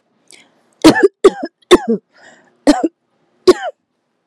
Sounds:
Cough